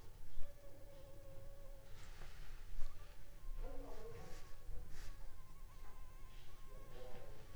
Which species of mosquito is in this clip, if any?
Anopheles funestus s.l.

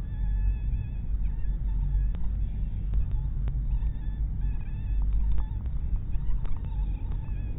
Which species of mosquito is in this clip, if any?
mosquito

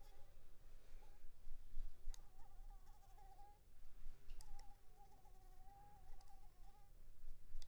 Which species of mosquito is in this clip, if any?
Anopheles arabiensis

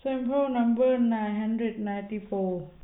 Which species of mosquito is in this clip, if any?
no mosquito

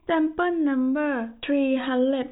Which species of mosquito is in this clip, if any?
no mosquito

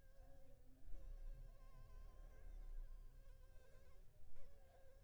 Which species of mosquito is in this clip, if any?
Anopheles funestus s.s.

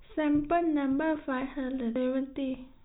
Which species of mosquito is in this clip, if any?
no mosquito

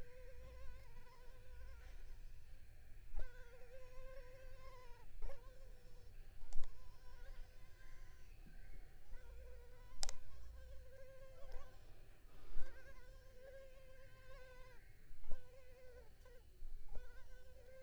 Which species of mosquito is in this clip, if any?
Culex pipiens complex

